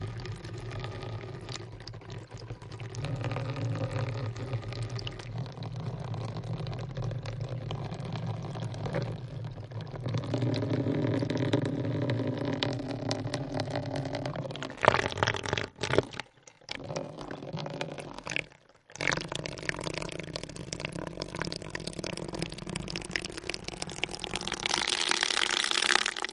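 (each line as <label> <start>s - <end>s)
Water steadily dripping into a tap at a high frequency. 0.0s - 14.8s
Water splashing into a water tap. 14.8s - 16.1s
Water dripping steadily into a tap at a high frequency, with increasing volume towards the end. 16.7s - 26.3s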